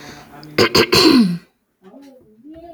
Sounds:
Throat clearing